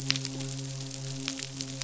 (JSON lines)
{"label": "biophony, midshipman", "recorder": "SoundTrap 500"}